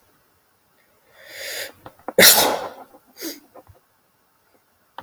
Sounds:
Sneeze